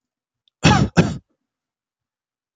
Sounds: Cough